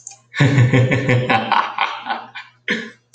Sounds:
Laughter